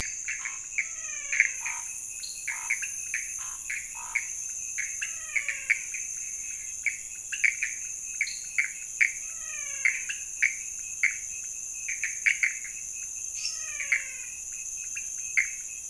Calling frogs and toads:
pointedbelly frog, Pithecopus azureus, Scinax fuscovarius, menwig frog, dwarf tree frog, lesser tree frog
Cerrado, Brazil, ~2am

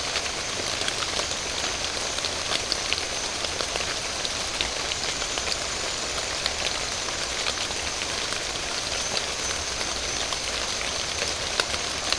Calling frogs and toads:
none
Atlantic Forest, Brazil, 3:30am

